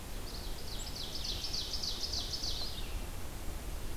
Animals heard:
Ovenbird (Seiurus aurocapilla), Red-eyed Vireo (Vireo olivaceus)

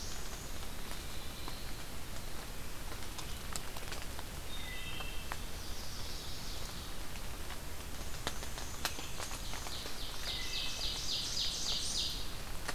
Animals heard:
Chestnut-sided Warbler (Setophaga pensylvanica), Wood Thrush (Hylocichla mustelina), Black-throated Blue Warbler (Setophaga caerulescens), Ovenbird (Seiurus aurocapilla), Black-and-white Warbler (Mniotilta varia)

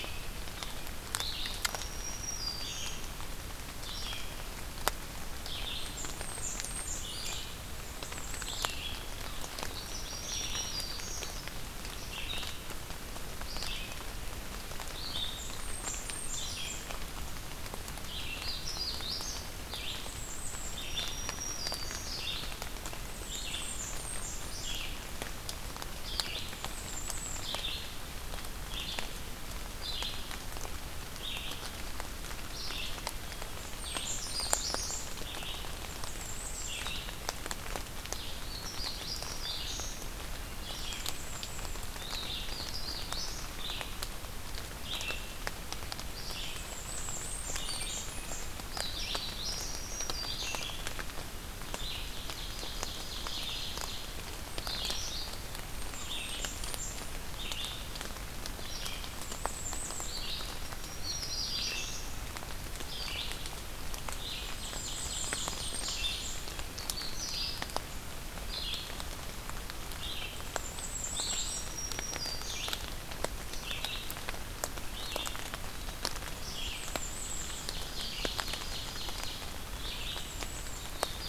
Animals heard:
Blackburnian Warbler (Setophaga fusca), Ovenbird (Seiurus aurocapilla), Red-eyed Vireo (Vireo olivaceus), Black-and-white Warbler (Mniotilta varia), Magnolia Warbler (Setophaga magnolia), Black-throated Green Warbler (Setophaga virens)

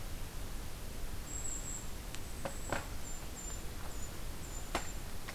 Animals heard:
Golden-crowned Kinglet (Regulus satrapa)

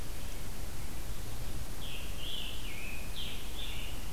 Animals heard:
Scarlet Tanager (Piranga olivacea)

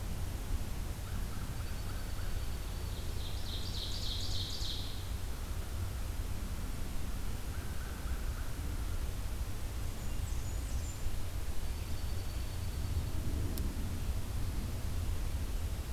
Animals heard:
Blackburnian Warbler (Setophaga fusca), American Crow (Corvus brachyrhynchos), Dark-eyed Junco (Junco hyemalis), Ovenbird (Seiurus aurocapilla)

